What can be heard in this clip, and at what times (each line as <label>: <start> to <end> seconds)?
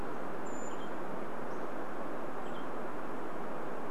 Brown Creeper call: 0 to 2 seconds
Hammond's Flycatcher song: 0 to 2 seconds
Western Tanager call: 0 to 4 seconds